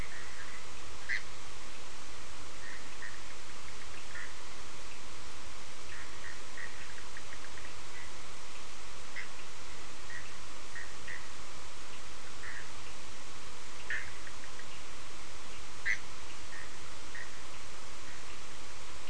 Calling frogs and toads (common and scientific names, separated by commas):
Bischoff's tree frog (Boana bischoffi)